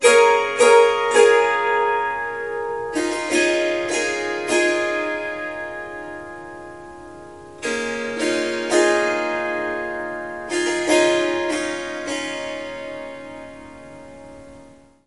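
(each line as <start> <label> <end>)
0.0 Melodic playing on a Swarmandal with clear, close metal string sounds. 15.0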